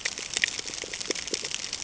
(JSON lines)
{"label": "ambient", "recorder": "HydroMoth"}